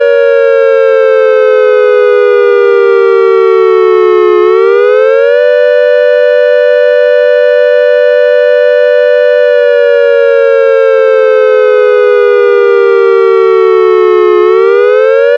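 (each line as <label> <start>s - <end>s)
A siren rises and falls in pitch continuously. 0.0s - 15.4s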